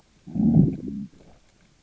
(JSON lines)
{"label": "biophony, growl", "recorder": "SoundTrap 600 or HydroMoth"}